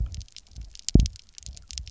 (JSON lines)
{"label": "biophony, double pulse", "recorder": "SoundTrap 300"}